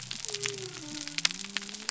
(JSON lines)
{"label": "biophony", "recorder": "SoundTrap 300"}